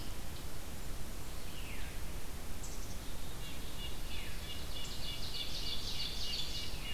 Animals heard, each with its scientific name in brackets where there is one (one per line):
Veery (Catharus fuscescens)
Ovenbird (Seiurus aurocapilla)
Red-breasted Nuthatch (Sitta canadensis)
Black-capped Chickadee (Poecile atricapillus)